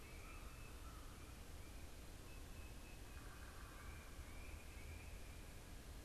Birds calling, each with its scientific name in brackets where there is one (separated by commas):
American Crow (Corvus brachyrhynchos), Tufted Titmouse (Baeolophus bicolor), Yellow-bellied Sapsucker (Sphyrapicus varius)